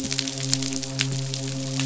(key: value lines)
label: biophony, midshipman
recorder: SoundTrap 500